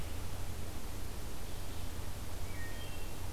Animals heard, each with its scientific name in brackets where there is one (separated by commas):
Wood Thrush (Hylocichla mustelina)